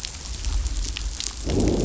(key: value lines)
label: biophony, growl
recorder: SoundTrap 500